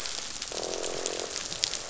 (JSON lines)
{"label": "biophony, croak", "recorder": "SoundTrap 500"}